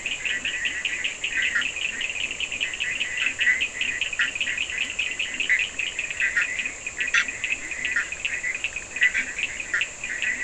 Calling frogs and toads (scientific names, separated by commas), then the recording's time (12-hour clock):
Boana bischoffi, Leptodactylus latrans, Sphaenorhynchus surdus
4:00am